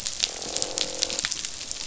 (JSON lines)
{"label": "biophony, croak", "recorder": "SoundTrap 500"}